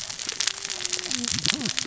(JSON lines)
{"label": "biophony, cascading saw", "recorder": "SoundTrap 600 or HydroMoth"}